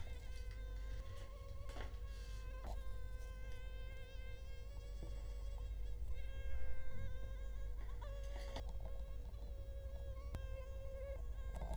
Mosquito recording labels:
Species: Culex quinquefasciatus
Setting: cup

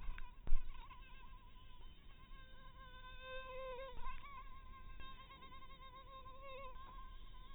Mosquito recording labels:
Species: mosquito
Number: one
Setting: cup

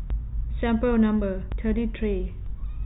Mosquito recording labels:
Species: no mosquito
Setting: cup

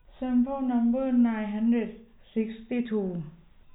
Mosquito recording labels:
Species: no mosquito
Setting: cup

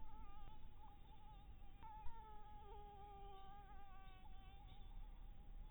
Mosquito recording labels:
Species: Anopheles dirus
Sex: female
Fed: blood-fed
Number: one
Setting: cup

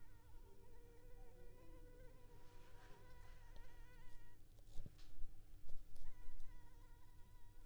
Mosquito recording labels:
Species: Anopheles arabiensis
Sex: female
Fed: unfed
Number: one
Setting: cup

